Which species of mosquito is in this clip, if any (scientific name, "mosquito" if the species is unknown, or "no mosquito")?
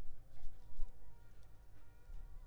Culex pipiens complex